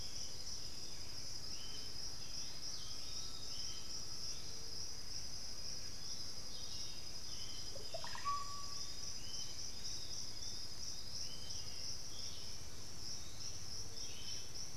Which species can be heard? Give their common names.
Bluish-fronted Jacamar, Black-billed Thrush, Piratic Flycatcher, Undulated Tinamou, unidentified bird, Russet-backed Oropendola